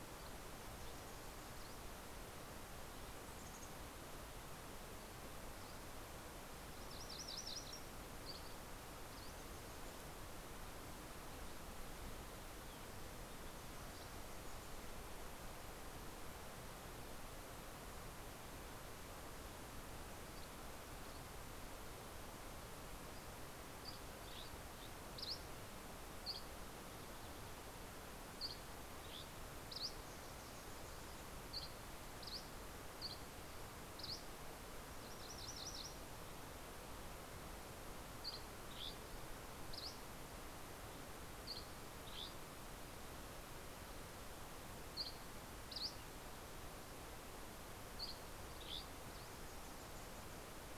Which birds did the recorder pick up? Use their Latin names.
Poecile gambeli, Geothlypis tolmiei, Empidonax oberholseri, Cardellina pusilla